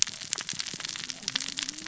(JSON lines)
{"label": "biophony, cascading saw", "recorder": "SoundTrap 600 or HydroMoth"}